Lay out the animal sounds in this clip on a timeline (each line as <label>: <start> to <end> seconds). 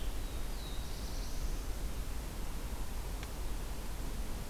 Black-throated Blue Warbler (Setophaga caerulescens): 0.1 to 1.8 seconds